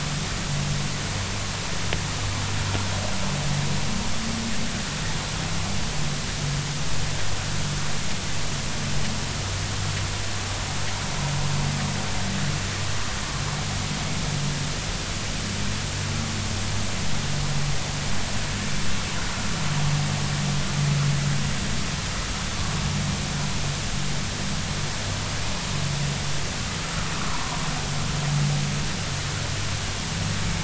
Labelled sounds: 27.2	27.6	vessel noise, 0.90 to 1.2 kHz

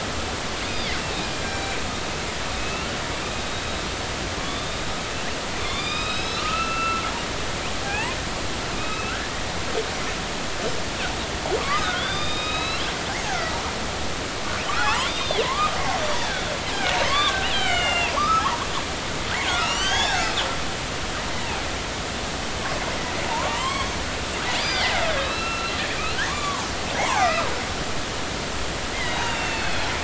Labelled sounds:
0.7	1.8	killer whale, northern resident, A clan, AB subclan, 2.3 to 4.0 kHz
2.6	2.9	killer whale, northern resident, A clan, AB subclan, 2.5 to 2.8 kHz
4.4	4.8	killer whale, northern resident, A clan, AB subclan, 0.99 to 3.7 kHz
5.6	7.3	killer whale, northern resident, A clan, AB subclan, 1.2 to 5.3 kHz
7.8	9.2	killer whale, northern resident, A clan, AB subclan, 0.80 to 3.9 kHz
11.6	12.8	killer whale, northern resident, A clan, AB subclan, 1.0 to 5.6 kHz
13.3	13.5	killer whale, northern resident, A clan, AB subclan, 1.2 to 1.7 kHz
14.7	15.8	killer whale, northern resident, A clan, AB subclan, 0.80 to 5.0 kHz
17.1	18.7	killer whale, northern resident, A clan, AB subclan, 0.80 to 5.3 kHz
19.5	20.4	killer whale, northern resident, A clan, AB subclan, 0.80 to 7.9 kHz
23.3	23.9	killer whale, northern resident, A clan, AB subclan, 0.83 to 7.8 kHz
24.6	26.7	killer whale, northern resident, A clan, AB subclan, 0.80 to 4.9 kHz
27.0	27.5	killer whale, northern resident, A clan, AB subclan, 0.80 to 2.9 kHz
28.9	29.9	killer whale, northern resident, A clan, AB subclan, 1.9 to 4.5 kHz

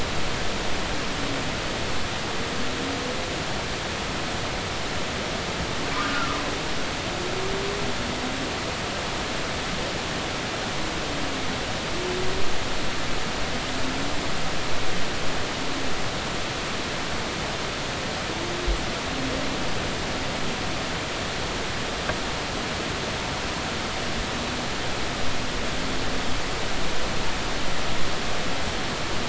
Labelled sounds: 5.9	6.4	humpback whale, 1.1 to 1.6 kHz

